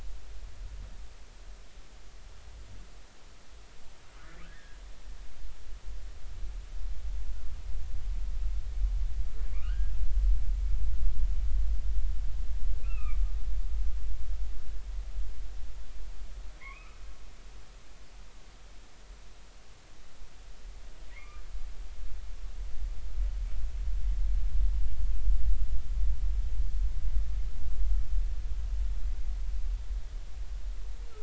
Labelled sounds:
4.1	4.8	humpback whale, 1.2 to 2.0 kHz
9.5	9.9	humpback whale, 1.1 to 3.0 kHz
12.8	13.2	humpback whale, 1.1 to 2.8 kHz
16.6	17.0	humpback whale, 0.99 to 2.7 kHz
21.1	21.4	humpback whale, 0.99 to 2.5 kHz

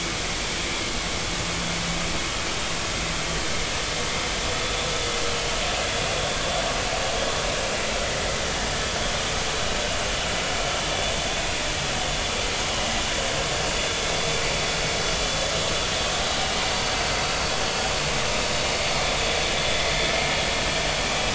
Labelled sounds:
18.8	19.1	vessel noise, 2.1 to 2.4 kHz
19.6	19.8	vessel noise, 3.4 to 3.5 kHz

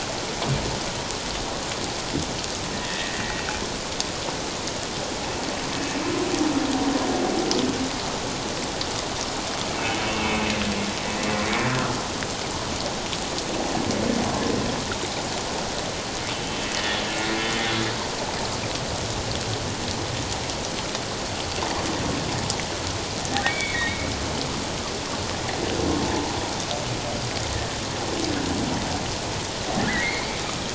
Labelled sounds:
2.7	3.2	humpback whale, 1.7 to 2.0 kHz
9.8	10.6	humpback whale, 2.1 to 2.8 kHz
23.5	24.1	humpback whale, 2.1 to 3.6 kHz
29.8	30.3	humpback whale, 1.5 to 2.3 kHz

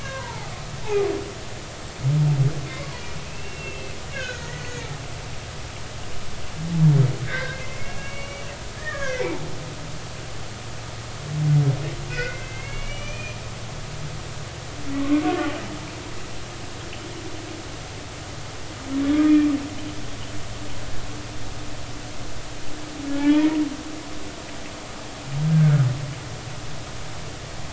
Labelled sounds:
0.0	0.5	humpback whale, 0.80 to 1.7 kHz
2.8	4.9	humpback whale, 1.4 to 4.6 kHz
7.2	9.5	humpback whale, 0.80 to 2.9 kHz
12.1	13.4	humpback whale, 1.4 to 6.1 kHz
15.0	15.2	humpback whale, 1.0 to 1.2 kHz
23.1	23.6	humpback whale, 0.80 to 2.5 kHz
25.5	25.9	humpback whale, 1.2 to 1.7 kHz

